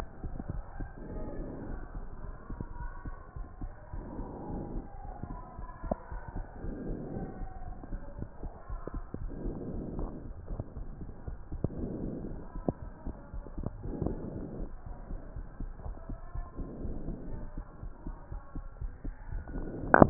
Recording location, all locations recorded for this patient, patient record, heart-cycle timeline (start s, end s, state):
pulmonary valve (PV)
aortic valve (AV)+pulmonary valve (PV)
#Age: nan
#Sex: Female
#Height: nan
#Weight: nan
#Pregnancy status: True
#Murmur: Absent
#Murmur locations: nan
#Most audible location: nan
#Systolic murmur timing: nan
#Systolic murmur shape: nan
#Systolic murmur grading: nan
#Systolic murmur pitch: nan
#Systolic murmur quality: nan
#Diastolic murmur timing: nan
#Diastolic murmur shape: nan
#Diastolic murmur grading: nan
#Diastolic murmur pitch: nan
#Diastolic murmur quality: nan
#Outcome: Normal
#Campaign: 2015 screening campaign
0.00	3.18	unannotated
3.18	3.36	diastole
3.36	3.48	S1
3.48	3.62	systole
3.62	3.74	S2
3.74	3.92	diastole
3.92	4.06	S1
4.06	4.18	systole
4.18	4.30	S2
4.30	4.48	diastole
4.48	4.62	S1
4.62	4.74	systole
4.74	4.84	S2
4.84	5.04	diastole
5.04	5.16	S1
5.16	5.30	systole
5.30	5.42	S2
5.42	5.58	diastole
5.58	5.70	S1
5.70	5.84	systole
5.84	5.96	S2
5.96	6.12	diastole
6.12	6.22	S1
6.22	6.36	systole
6.36	6.46	S2
6.46	6.62	diastole
6.62	6.76	S1
6.76	6.86	systole
6.86	6.98	S2
6.98	7.12	diastole
7.12	7.28	S1
7.28	7.40	systole
7.40	7.50	S2
7.50	7.68	diastole
7.68	7.80	S1
7.80	7.92	systole
7.92	8.02	S2
8.02	8.18	diastole
8.18	8.30	S1
8.30	8.44	systole
8.44	8.52	S2
8.52	8.70	diastole
8.70	8.82	S1
8.82	8.94	systole
8.94	9.06	S2
9.06	9.22	diastole
9.22	9.32	S1
9.32	9.40	systole
9.40	9.56	S2
9.56	9.72	diastole
9.72	9.88	S1
9.88	9.96	systole
9.96	10.10	S2
10.10	10.24	diastole
10.24	10.38	S1
10.38	10.50	systole
10.50	10.64	S2
10.64	10.78	diastole
10.78	10.90	S1
10.90	11.02	systole
11.02	11.10	S2
11.10	11.26	diastole
11.26	11.38	S1
11.38	11.50	systole
11.50	11.62	S2
11.62	11.76	diastole
11.76	11.92	S1
11.92	12.02	systole
12.02	12.14	S2
12.14	12.32	diastole
12.32	12.44	S1
12.44	12.56	systole
12.56	12.64	S2
12.64	12.82	diastole
12.82	12.92	S1
12.92	13.06	systole
13.06	13.18	S2
13.18	13.34	diastole
13.34	13.44	S1
13.44	13.56	systole
13.56	13.68	S2
13.68	13.84	diastole
13.84	13.98	S1
13.98	14.06	systole
14.06	14.18	S2
14.18	14.34	diastole
14.34	14.48	S1
14.48	14.56	systole
14.56	14.70	S2
14.70	14.85	diastole
14.85	14.98	S1
14.98	15.10	systole
15.10	15.22	S2
15.22	15.36	diastole
15.36	15.48	S1
15.48	15.60	systole
15.60	15.72	S2
15.72	15.84	diastole
15.84	15.96	S1
15.96	16.08	systole
16.08	16.18	S2
16.18	16.36	diastole
16.36	16.48	S1
16.48	16.57	systole
16.57	16.68	S2
16.68	16.80	diastole
16.80	16.96	S1
16.96	17.04	systole
17.04	17.18	S2
17.18	17.32	diastole
17.32	17.44	S1
17.44	17.56	systole
17.56	17.66	S2
17.66	17.84	diastole
17.84	17.92	S1
17.92	18.06	systole
18.06	18.16	S2
18.16	18.32	diastole
18.32	18.42	S1
18.42	18.56	systole
18.56	18.66	S2
18.66	18.82	diastole
18.82	18.92	S1
18.92	19.06	systole
19.06	19.14	S2
19.14	19.30	diastole
19.30	20.10	unannotated